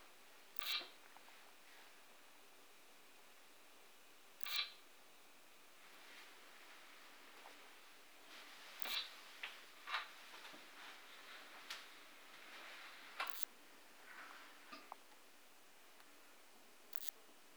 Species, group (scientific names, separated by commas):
Odontura macphersoni, Orthoptera